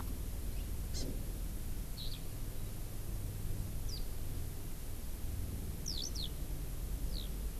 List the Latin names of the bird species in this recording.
Chlorodrepanis virens, Alauda arvensis